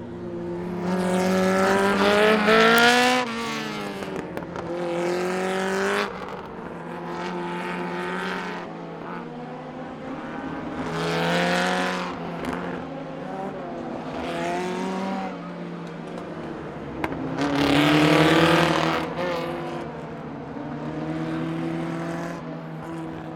Is this sound coming from something that is moving quickly?
yes